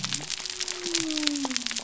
{"label": "biophony", "recorder": "SoundTrap 300"}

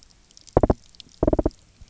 {"label": "biophony", "recorder": "SoundTrap 300"}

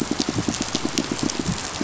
{"label": "biophony, pulse", "recorder": "SoundTrap 500"}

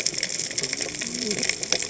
{"label": "biophony, cascading saw", "recorder": "HydroMoth"}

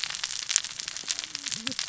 {"label": "biophony, cascading saw", "recorder": "SoundTrap 600 or HydroMoth"}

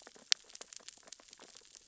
{"label": "biophony, sea urchins (Echinidae)", "recorder": "SoundTrap 600 or HydroMoth"}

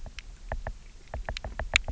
{"label": "biophony, knock", "recorder": "SoundTrap 300"}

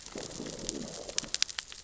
{"label": "biophony, growl", "recorder": "SoundTrap 600 or HydroMoth"}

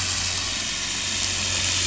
{"label": "anthrophony, boat engine", "recorder": "SoundTrap 500"}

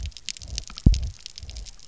{"label": "biophony, double pulse", "recorder": "SoundTrap 300"}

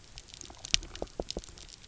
{"label": "biophony", "recorder": "SoundTrap 300"}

